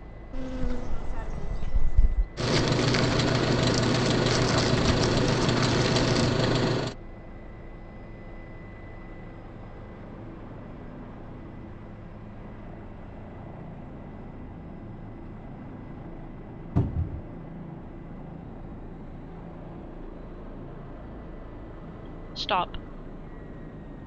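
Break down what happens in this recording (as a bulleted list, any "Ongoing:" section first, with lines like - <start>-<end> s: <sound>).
- 0.33-2.27 s: an insect can be heard
- 2.36-6.95 s: the sound of a truck is audible
- 16.75-17.21 s: a cupboard opens or closes
- 22.36-22.78 s: someone says "Stop."
- a steady noise lies about 20 decibels below the sounds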